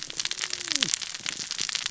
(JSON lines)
{"label": "biophony, cascading saw", "recorder": "SoundTrap 600 or HydroMoth"}